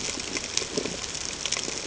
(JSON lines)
{"label": "ambient", "recorder": "HydroMoth"}